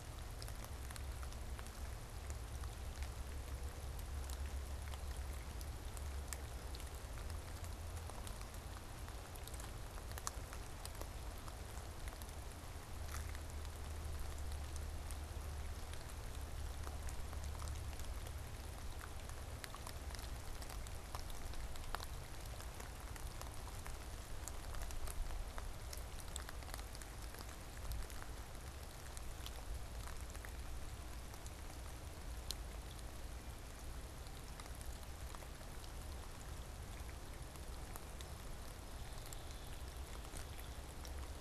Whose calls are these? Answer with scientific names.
Dryobates villosus